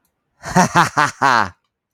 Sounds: Laughter